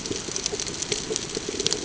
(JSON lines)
{"label": "ambient", "recorder": "HydroMoth"}